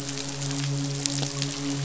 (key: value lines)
label: biophony, midshipman
recorder: SoundTrap 500